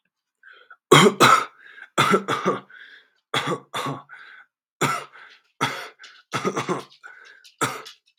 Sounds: Cough